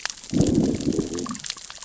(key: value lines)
label: biophony, growl
recorder: SoundTrap 600 or HydroMoth